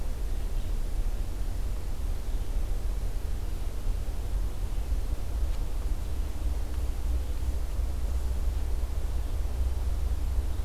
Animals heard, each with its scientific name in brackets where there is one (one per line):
Red-eyed Vireo (Vireo olivaceus)